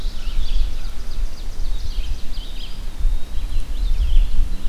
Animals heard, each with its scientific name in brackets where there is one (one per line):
Red-eyed Vireo (Vireo olivaceus)
Eastern Wood-Pewee (Contopus virens)
Ovenbird (Seiurus aurocapilla)